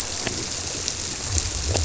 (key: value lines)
label: biophony
recorder: SoundTrap 300